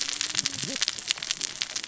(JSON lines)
{"label": "biophony, cascading saw", "recorder": "SoundTrap 600 or HydroMoth"}